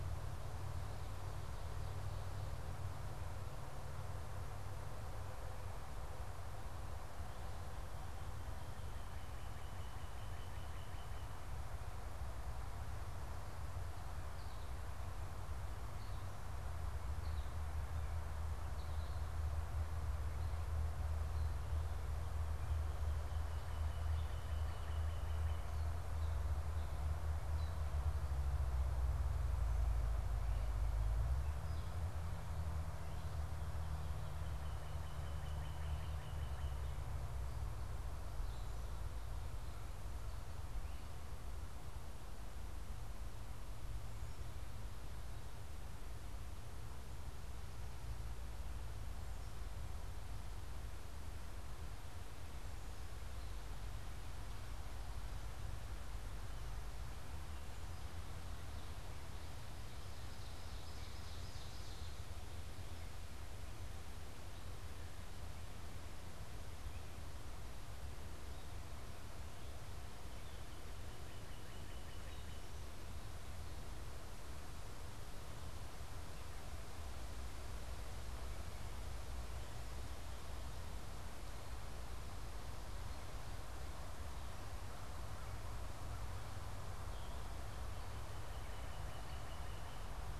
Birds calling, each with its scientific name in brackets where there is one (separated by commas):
Northern Cardinal (Cardinalis cardinalis), Ovenbird (Seiurus aurocapilla), American Goldfinch (Spinus tristis)